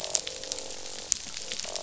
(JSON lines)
{"label": "biophony, croak", "recorder": "SoundTrap 500"}